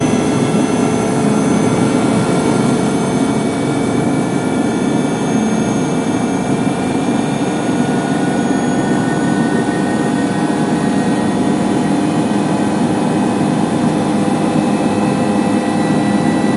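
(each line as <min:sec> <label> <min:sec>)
0:00.0 A helicopter rotor accelerates with wind noise. 0:16.6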